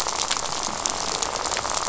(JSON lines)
{"label": "biophony, rattle", "recorder": "SoundTrap 500"}